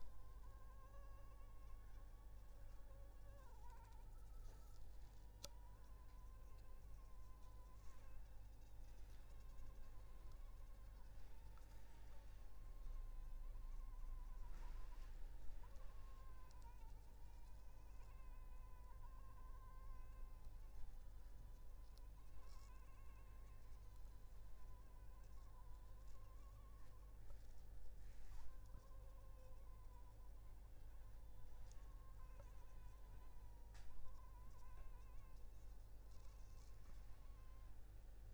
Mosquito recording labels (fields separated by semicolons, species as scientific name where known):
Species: Anopheles funestus s.s.; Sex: female; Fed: unfed; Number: one; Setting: cup